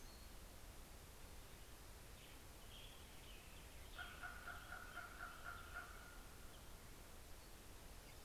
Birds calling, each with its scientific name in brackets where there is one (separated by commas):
Common Raven (Corvus corax), Hermit Warbler (Setophaga occidentalis), Western Tanager (Piranga ludoviciana)